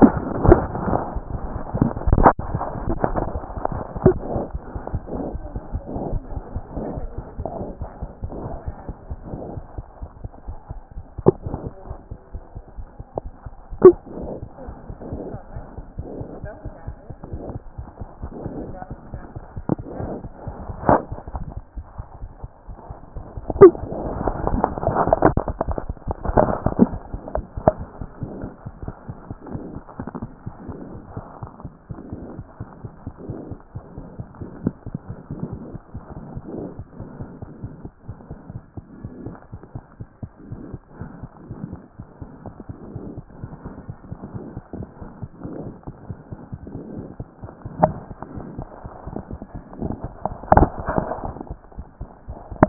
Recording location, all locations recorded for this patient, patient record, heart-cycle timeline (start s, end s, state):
aortic valve (AV)
aortic valve (AV)+aortic valve (AV)+mitral valve (MV)+mitral valve (MV)
#Age: Infant
#Sex: Female
#Height: 66.0 cm
#Weight: 8.2 kg
#Pregnancy status: False
#Murmur: Absent
#Murmur locations: nan
#Most audible location: nan
#Systolic murmur timing: nan
#Systolic murmur shape: nan
#Systolic murmur grading: nan
#Systolic murmur pitch: nan
#Systolic murmur quality: nan
#Diastolic murmur timing: nan
#Diastolic murmur shape: nan
#Diastolic murmur grading: nan
#Diastolic murmur pitch: nan
#Diastolic murmur quality: nan
#Outcome: Abnormal
#Campaign: 2014 screening campaign
0.00	30.40	unannotated
30.40	30.48	diastole
30.48	30.54	S1
30.54	30.68	systole
30.68	30.76	S2
30.76	30.92	diastole
30.92	31.02	S1
31.02	31.16	systole
31.16	31.24	S2
31.24	31.44	diastole
31.44	31.50	S1
31.50	31.64	systole
31.64	31.70	S2
31.70	31.92	diastole
31.92	32.00	S1
32.00	32.14	systole
32.14	32.20	S2
32.20	32.38	diastole
32.38	32.46	S1
32.46	32.60	systole
32.60	32.66	S2
32.66	32.84	diastole
32.84	32.92	S1
32.92	33.06	systole
33.06	33.12	S2
33.12	33.28	diastole
33.28	33.38	S1
33.38	33.50	systole
33.50	33.58	S2
33.58	33.76	diastole
33.76	33.84	S1
33.84	33.96	systole
33.96	34.06	S2
34.06	34.19	diastole
34.19	34.28	S1
34.28	34.40	systole
34.40	34.48	S2
34.48	34.64	diastole
34.64	52.69	unannotated